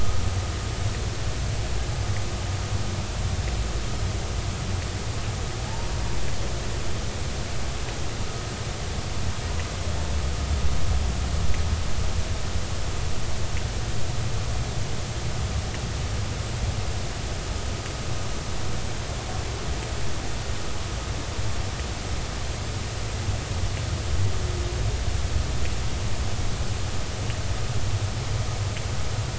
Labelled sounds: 5.7	5.9	humpback whale, 0.80 to 0.99 kHz

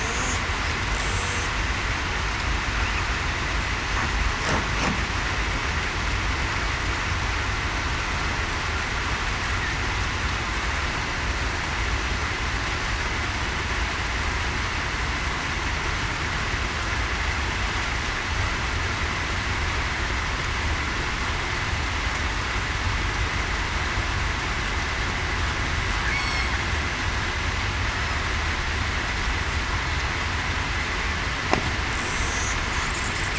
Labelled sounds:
26.1	26.5	killer whale, southern resident, 2.1 to 4.5 kHz

